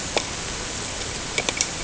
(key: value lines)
label: ambient
recorder: HydroMoth